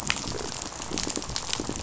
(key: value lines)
label: biophony, rattle
recorder: SoundTrap 500